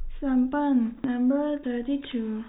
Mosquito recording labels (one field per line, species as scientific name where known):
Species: no mosquito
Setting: cup